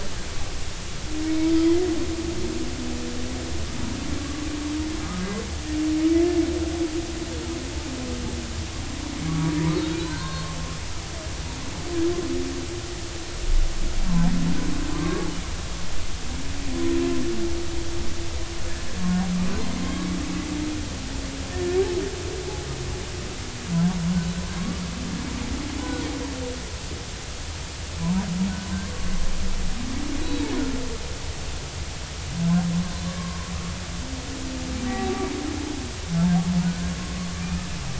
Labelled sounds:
4.2	4.5	humpback whale, 1.1 to 1.2 kHz
5.0	5.2	humpback whale, 1.2 to 1.3 kHz
9.3	9.5	humpback whale, 1.1 to 1.2 kHz
10.0	11.6	humpback whale, 0.90 to 4.3 kHz
14.9	15.3	humpback whale, 1.0 to 1.2 kHz
21.5	21.8	humpback whale, 1.7 to 1.9 kHz
25.8	26.1	humpback whale, 1.4 to 1.5 kHz
28.0	28.3	humpback whale, 0.86 to 1.1 kHz
30.2	30.5	humpback whale, 3.7 to 4.0 kHz
33.2	33.5	humpback whale, 0.96 to 1.2 kHz
36.6	37.7	humpback whale, 1.2 to 1.6 kHz

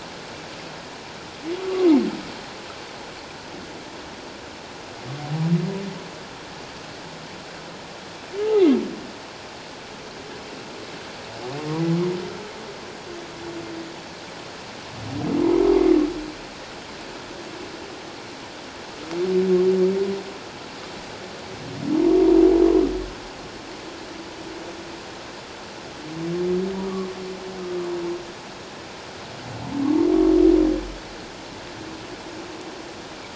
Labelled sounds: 8.5	8.8	humpback whale, 1.9 to 2.2 kHz

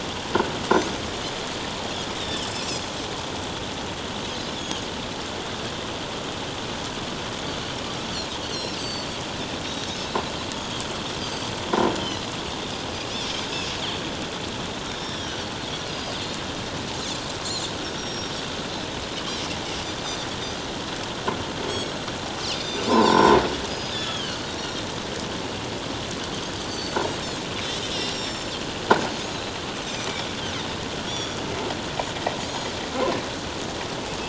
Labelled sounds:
0.7	0.9	Pacific white-sided dolphin, 5.9 to 6.6 kHz
2.2	2.5	Pacific white-sided dolphin, 2.9 to 3.8 kHz
4.5	4.9	Pacific white-sided dolphin, 2.9 to 6.7 kHz
8.5	9.1	Pacific white-sided dolphin, 2.6 to 7.8 kHz
9.6	10.0	Pacific white-sided dolphin, 3.6 to 3.9 kHz
10.5	10.8	Pacific white-sided dolphin, 3.2 to 3.4 kHz
11.2	12.3	Pacific white-sided dolphin, 3.9 to 4.8 kHz
13.5	13.8	Pacific white-sided dolphin, 6.6 to 6.8 kHz
15.0	16.2	Pacific white-sided dolphin, 2.9 to 5.7 kHz
17.9	18.3	Pacific white-sided dolphin, 5.5 to 5.8 kHz
21.7	22.0	Pacific white-sided dolphin, 5.4 to 6.7 kHz
22.5	23.4	Pacific white-sided dolphin, 0.84 to 5.7 kHz
22.6	22.9	croaking sound likely from a nearby submerged object, 5.8 to 6.2 kHz
23.7	24.9	Pacific white-sided dolphin, 2.8 to 7.2 kHz
26.6	27.0	Pacific white-sided dolphin, 4.4 to 4.7 kHz
27.6	27.8	Pacific white-sided dolphin, 7.7 to 7.9 kHz
28.1	28.5	Pacific white-sided dolphin, 5.3 to 7.5 kHz
29.8	30.1	Pacific white-sided dolphin, 5.9 to 6.2 kHz
31.0	31.4	Pacific white-sided dolphin, 3.3 to 5.8 kHz
32.5	32.7	Pacific white-sided dolphin, 6.5 to 6.8 kHz

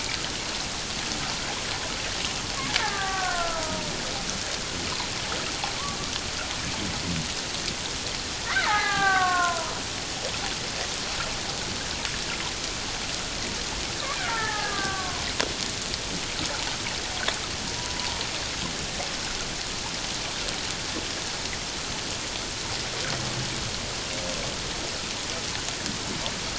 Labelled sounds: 2.8	3.9	killer whale, Bigg's (transient), 0.78 to 1.9 kHz
8.5	9.7	killer whale, Bigg's (transient), 0.78 to 2.2 kHz
14.1	15.2	killer whale, Bigg's (transient), 0.78 to 1.9 kHz
17.8	18.2	killer whale, Bigg's (transient), 0.84 to 1.0 kHz

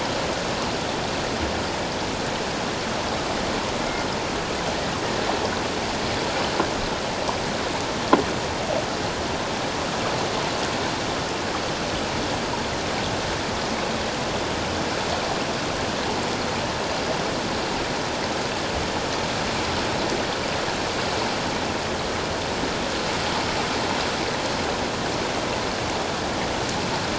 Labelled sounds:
3.8	4.1	killer whale, 2.0 to 2.2 kHz

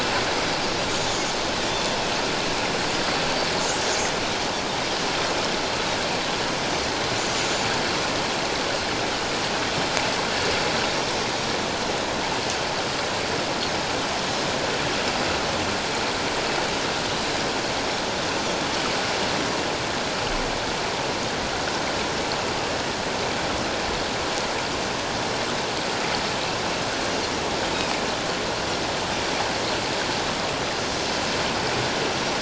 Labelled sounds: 0.9	1.3	Pacific white-sided dolphin, 6.3 to 7.3 kHz
3.6	4.1	Pacific white-sided dolphin, 5.4 to 6.9 kHz
7.4	7.7	Pacific white-sided dolphin, 6.7 to 6.9 kHz

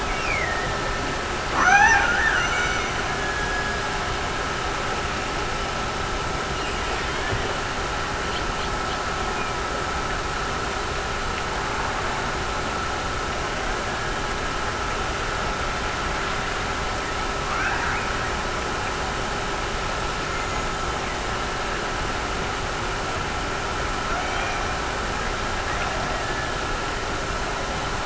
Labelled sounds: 0.0	4.0	killer whale, Bigg's (transient), Gulf of Alaska transient, 0.53 to 6.3 kHz
6.4	7.5	killer whale, Bigg's (transient), Gulf of Alaska transient, 1.6 to 3.0 kHz

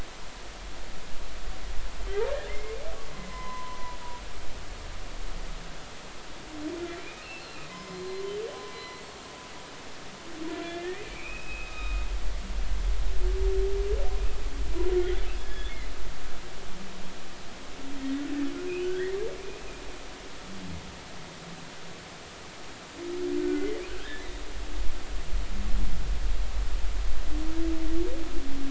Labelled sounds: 2.5	2.8	humpback whale, 2.0 to 2.3 kHz
3.1	4.0	humpback whale, 0.93 to 2.1 kHz
7.0	8.0	humpback whale, 0.96 to 2.9 kHz
8.7	9.3	humpback whale, 2.0 to 4.4 kHz
10.6	12.0	humpback whale, 1.2 to 3.8 kHz
15.4	15.8	humpback whale, 1.6 to 3.6 kHz
18.0	19.2	humpback whale, 1.4 to 3.1 kHz
23.4	24.3	humpback whale, 1.4 to 2.1 kHz

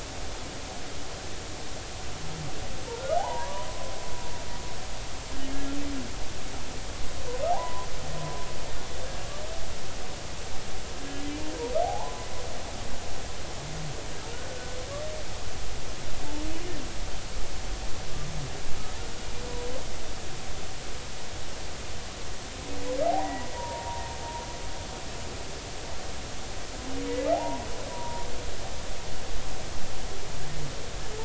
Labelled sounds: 3.0	3.7	humpback whale, 0.80 to 1.6 kHz
7.5	7.9	humpback whale, 0.80 to 1.1 kHz
11.8	12.3	humpback whale, 0.80 to 1.1 kHz
14.5	14.8	humpback whale, 1.4 to 1.5 kHz
23.0	24.0	humpback whale, 0.80 to 2.0 kHz
27.3	28.3	humpback whale, 0.80 to 1.0 kHz

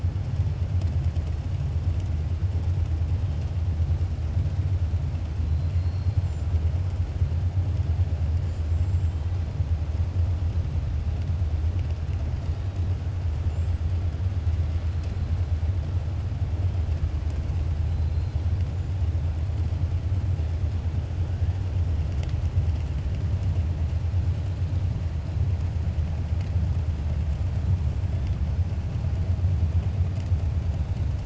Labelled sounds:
5.5	6.2	killer whale, 4.1 to 4.6 kHz
8.4	9.2	killer whale, 6.4 to 8.0 kHz

